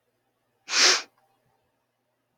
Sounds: Sniff